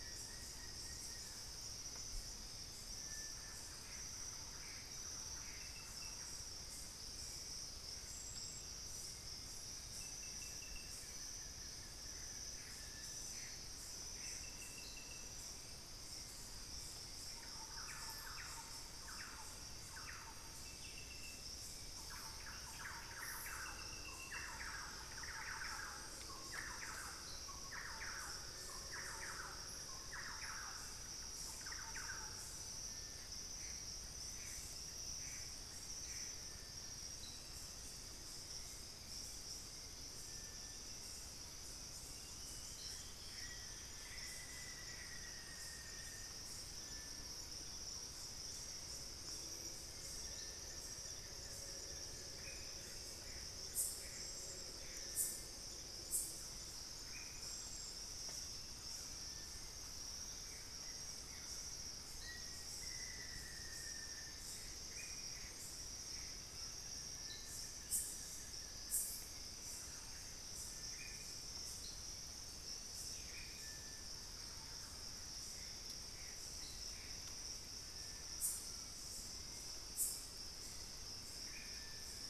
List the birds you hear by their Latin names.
Thamnophilus schistaceus, Crypturellus cinereus, Campylorhynchus turdinus, Cercomacra cinerascens, Xiphorhynchus guttatus, Sittasomus griseicapillus, Formicarius analis, Crypturellus soui, Trogon collaris